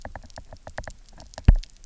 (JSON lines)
{"label": "biophony, knock", "recorder": "SoundTrap 300"}